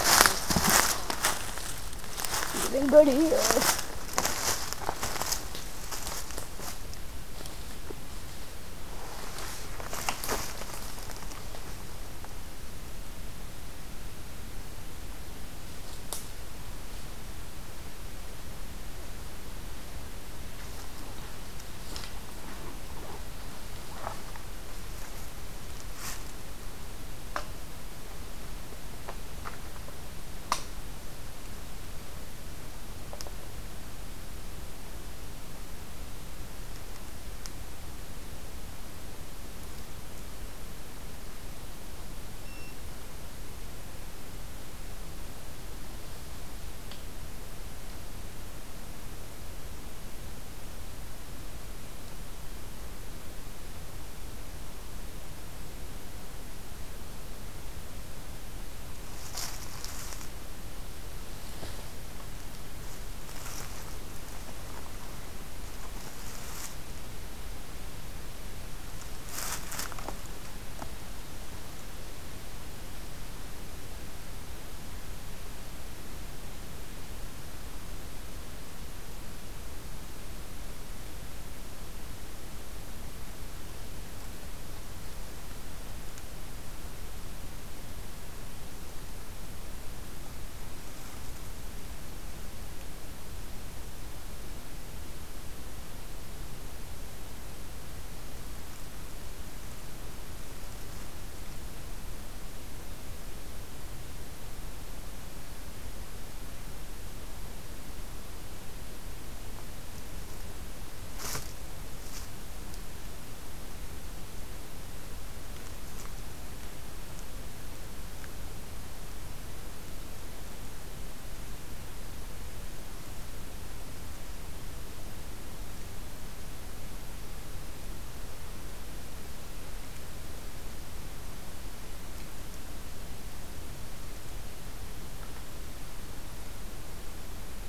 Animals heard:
forest ambience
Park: Katahdin Woods and Waters National Monument